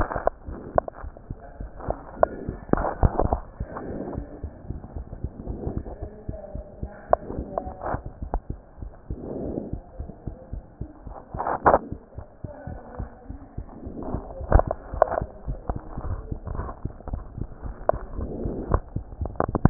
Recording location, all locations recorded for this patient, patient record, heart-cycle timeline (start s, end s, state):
mitral valve (MV)
aortic valve (AV)+pulmonary valve (PV)+tricuspid valve (TV)+mitral valve (MV)
#Age: Child
#Sex: Male
#Height: 98.0 cm
#Weight: 14.0 kg
#Pregnancy status: False
#Murmur: Absent
#Murmur locations: nan
#Most audible location: nan
#Systolic murmur timing: nan
#Systolic murmur shape: nan
#Systolic murmur grading: nan
#Systolic murmur pitch: nan
#Systolic murmur quality: nan
#Diastolic murmur timing: nan
#Diastolic murmur shape: nan
#Diastolic murmur grading: nan
#Diastolic murmur pitch: nan
#Diastolic murmur quality: nan
#Outcome: Normal
#Campaign: 2015 screening campaign
0.00	4.94	unannotated
4.94	5.06	S1
5.06	5.20	systole
5.20	5.32	S2
5.32	5.48	diastole
5.48	5.60	S1
5.60	5.74	systole
5.74	5.84	S2
5.84	6.00	diastole
6.00	6.10	S1
6.10	6.28	systole
6.28	6.38	S2
6.38	6.54	diastole
6.54	6.64	S1
6.64	6.82	systole
6.82	6.90	S2
6.90	7.10	diastole
7.10	7.20	S1
7.20	7.36	systole
7.36	7.48	S2
7.48	7.64	diastole
7.64	7.74	S1
7.74	7.92	systole
7.92	8.04	S2
8.04	8.20	diastole
8.20	8.35	S1
8.35	8.48	systole
8.48	8.60	S2
8.60	8.80	diastole
8.80	8.92	S1
8.92	9.08	systole
9.08	9.20	S2
9.20	9.40	diastole
9.40	9.54	S1
9.54	9.71	systole
9.71	9.82	S2
9.82	9.98	diastole
9.98	10.10	S1
10.10	10.26	systole
10.26	10.36	S2
10.36	10.52	diastole
10.52	10.62	S1
10.62	10.80	systole
10.80	10.88	S2
10.88	11.06	diastole
11.06	11.16	S1
11.16	11.34	systole
11.34	11.44	S2
11.44	11.66	diastole
11.66	11.82	S1
11.82	11.89	systole
11.89	11.98	S2
11.98	12.15	diastole
12.15	12.24	S1
12.24	12.40	systole
12.40	12.50	S2
12.50	12.67	diastole
12.67	12.80	S1
12.80	12.98	systole
12.98	13.08	S2
13.08	13.28	diastole
13.28	13.40	S1
13.40	13.58	systole
13.58	13.66	S2
13.66	13.84	diastole
13.84	13.96	S1
13.96	14.13	systole
14.13	14.22	S2
14.22	19.70	unannotated